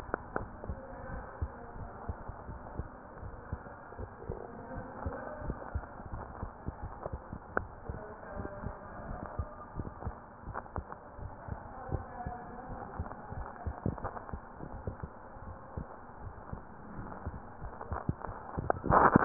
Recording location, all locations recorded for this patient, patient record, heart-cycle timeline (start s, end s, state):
mitral valve (MV)
aortic valve (AV)+pulmonary valve (PV)+tricuspid valve (TV)+mitral valve (MV)
#Age: Child
#Sex: Male
#Height: 121.0 cm
#Weight: 26.1 kg
#Pregnancy status: False
#Murmur: Absent
#Murmur locations: nan
#Most audible location: nan
#Systolic murmur timing: nan
#Systolic murmur shape: nan
#Systolic murmur grading: nan
#Systolic murmur pitch: nan
#Systolic murmur quality: nan
#Diastolic murmur timing: nan
#Diastolic murmur shape: nan
#Diastolic murmur grading: nan
#Diastolic murmur pitch: nan
#Diastolic murmur quality: nan
#Outcome: Abnormal
#Campaign: 2015 screening campaign
0.00	0.78	unannotated
0.78	1.08	diastole
1.08	1.24	S1
1.24	1.38	systole
1.38	1.50	S2
1.50	1.76	diastole
1.76	1.90	S1
1.90	2.04	systole
2.04	2.18	S2
2.18	2.48	diastole
2.48	2.60	S1
2.60	2.74	systole
2.74	2.90	S2
2.90	3.22	diastole
3.22	3.32	S1
3.32	3.48	systole
3.48	3.62	S2
3.62	3.98	diastole
3.98	4.10	S1
4.10	4.26	systole
4.26	4.40	S2
4.40	4.70	diastole
4.70	4.86	S1
4.86	5.04	systole
5.04	5.18	S2
5.18	5.44	diastole
5.44	5.58	S1
5.58	5.74	systole
5.74	5.84	S2
5.84	6.10	diastole
6.10	6.26	S1
6.26	6.40	systole
6.40	6.52	S2
6.52	6.82	diastole
6.82	6.96	S1
6.96	7.12	systole
7.12	7.24	S2
7.24	7.54	diastole
7.54	7.70	S1
7.70	7.88	systole
7.88	8.02	S2
8.02	8.36	diastole
8.36	8.50	S1
8.50	8.64	systole
8.64	8.76	S2
8.76	9.04	diastole
9.04	9.20	S1
9.20	9.34	systole
9.34	9.46	S2
9.46	9.76	diastole
9.76	9.92	S1
9.92	10.06	systole
10.06	10.16	S2
10.16	10.46	diastole
10.46	10.58	S1
10.58	10.74	systole
10.74	10.88	S2
10.88	11.22	diastole
11.22	11.34	S1
11.34	11.48	systole
11.48	11.60	S2
11.60	11.90	diastole
11.90	12.06	S1
12.06	12.22	systole
12.22	12.34	S2
12.34	12.68	diastole
12.68	12.80	S1
12.80	12.94	systole
12.94	13.08	S2
13.08	13.32	diastole
13.32	13.48	S1
13.48	13.64	systole
13.64	13.76	S2
13.76	14.02	diastole
14.02	14.14	S1
14.14	14.32	systole
14.32	14.44	S2
14.44	14.74	diastole
14.74	14.86	S1
14.86	15.02	systole
15.02	15.10	S2
15.10	15.46	diastole
15.46	15.58	S1
15.58	15.76	systole
15.76	15.88	S2
15.88	16.22	diastole
16.22	16.34	S1
16.34	16.52	systole
16.52	16.64	S2
16.64	16.96	diastole
16.96	17.08	S1
17.08	17.22	systole
17.22	17.34	S2
17.34	17.62	diastole
17.62	17.74	S1
17.74	17.90	systole
17.90	18.02	S2
18.02	18.28	diastole
18.28	19.25	unannotated